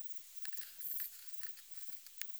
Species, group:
Platycleis albopunctata, Orthoptera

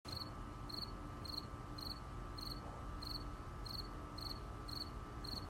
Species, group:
Gryllus pennsylvanicus, Orthoptera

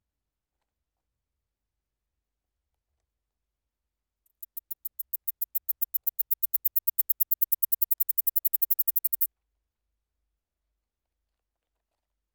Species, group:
Platystolus martinezii, Orthoptera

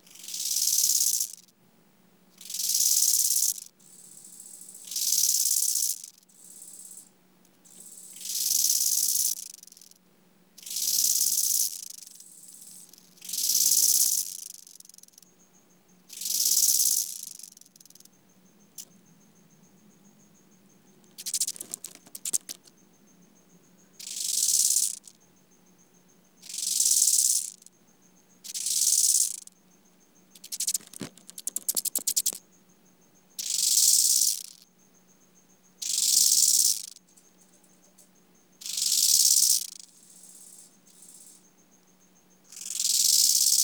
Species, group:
Chorthippus eisentrauti, Orthoptera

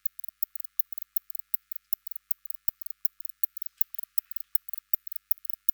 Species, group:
Barbitistes kaltenbachi, Orthoptera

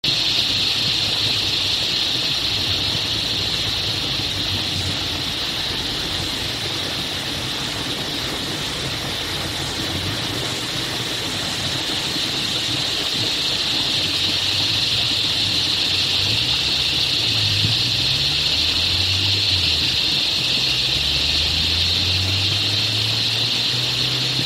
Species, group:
Henicopsaltria eydouxii, Cicadidae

